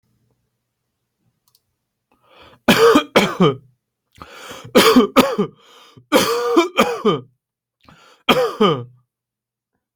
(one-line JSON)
{"expert_labels": [{"quality": "good", "cough_type": "unknown", "dyspnea": false, "wheezing": false, "stridor": false, "choking": false, "congestion": false, "nothing": true, "diagnosis": "upper respiratory tract infection", "severity": "severe"}], "age": 23, "gender": "male", "respiratory_condition": false, "fever_muscle_pain": false, "status": "healthy"}